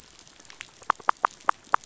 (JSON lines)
{"label": "biophony, knock", "recorder": "SoundTrap 500"}